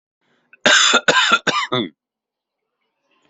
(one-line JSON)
{"expert_labels": [{"quality": "ok", "cough_type": "dry", "dyspnea": false, "wheezing": true, "stridor": false, "choking": false, "congestion": false, "nothing": false, "diagnosis": "COVID-19", "severity": "mild"}, {"quality": "good", "cough_type": "dry", "dyspnea": false, "wheezing": false, "stridor": false, "choking": false, "congestion": false, "nothing": true, "diagnosis": "COVID-19", "severity": "mild"}, {"quality": "good", "cough_type": "dry", "dyspnea": false, "wheezing": false, "stridor": false, "choking": false, "congestion": false, "nothing": true, "diagnosis": "upper respiratory tract infection", "severity": "mild"}, {"quality": "good", "cough_type": "dry", "dyspnea": false, "wheezing": false, "stridor": false, "choking": false, "congestion": false, "nothing": true, "diagnosis": "healthy cough", "severity": "pseudocough/healthy cough"}]}